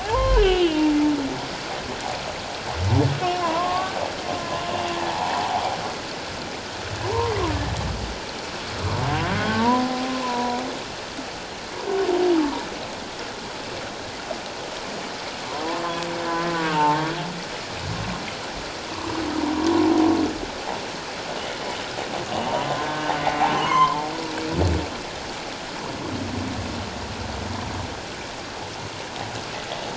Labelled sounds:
0.0	0.9	humpback whale, 0.78 to 3.7 kHz
3.2	4.7	humpback whale, 0.78 to 1.2 kHz
5.1	5.4	humpback whale, 0.78 to 1.2 kHz
9.4	10.6	humpback whale, 0.78 to 1.6 kHz
15.6	15.8	humpback whale, 0.78 to 0.91 kHz
16.6	17.1	humpback whale, 0.84 to 1.2 kHz
22.5	24.1	humpback whale, 0.84 to 4.4 kHz

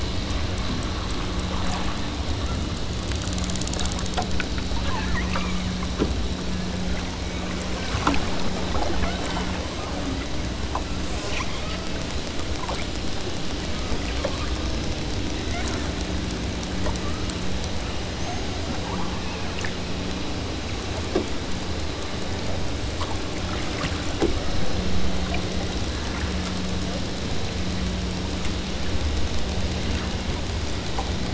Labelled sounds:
4.7	5.7	killer whale, southern Alaska resident, 0.81 to 2.6 kHz
9.0	9.5	killer whale, southern Alaska resident, 0.99 to 3.4 kHz
9.8	10.2	killer whale, southern Alaska resident, 0.73 to 2.1 kHz
11.3	11.9	killer whale, southern Alaska resident, 0.90 to 3.6 kHz
15.4	16.0	killer whale, southern Alaska resident, 0.99 to 2.8 kHz
16.9	17.5	killer whale, southern Alaska resident, 0.73 to 1.8 kHz
18.1	19.3	killer whale, southern Alaska resident, 0.51 to 1.7 kHz

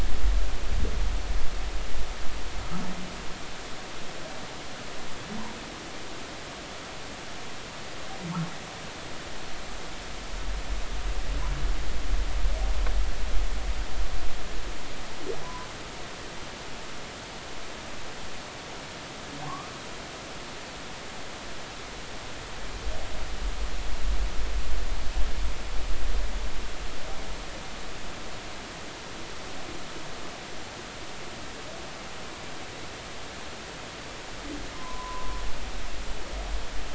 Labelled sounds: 15.4	15.7	humpback whale, 0.93 to 1.1 kHz
19.4	19.7	humpback whale, 0.99 to 1.3 kHz
34.8	35.4	humpback whale, 0.96 to 1.1 kHz

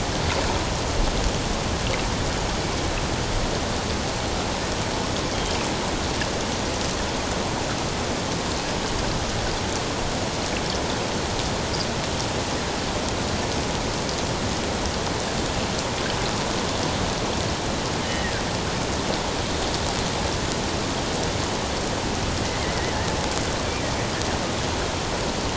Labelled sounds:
18.0	18.3	killer whale, offshore, 1.7 to 3.2 kHz

